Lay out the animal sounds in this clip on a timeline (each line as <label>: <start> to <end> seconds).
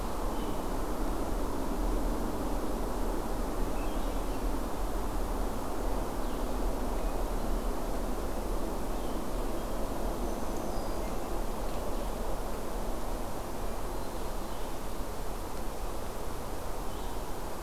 Swainson's Thrush (Catharus ustulatus): 3.6 to 4.6 seconds
Black-throated Green Warbler (Setophaga virens): 10.0 to 11.4 seconds
Red-eyed Vireo (Vireo olivaceus): 16.8 to 17.3 seconds